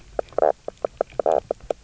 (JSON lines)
{"label": "biophony, knock croak", "recorder": "SoundTrap 300"}